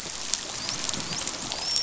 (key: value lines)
label: biophony, dolphin
recorder: SoundTrap 500